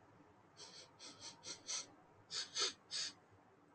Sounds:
Sniff